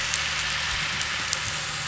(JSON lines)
{"label": "anthrophony, boat engine", "recorder": "SoundTrap 500"}